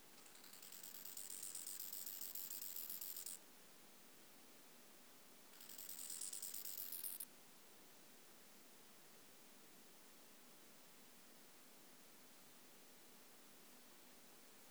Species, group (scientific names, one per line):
Chorthippus biguttulus
Orthoptera